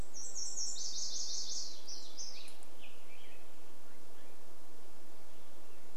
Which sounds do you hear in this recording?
Nashville Warbler song, Black-headed Grosbeak song, warbler song, unidentified sound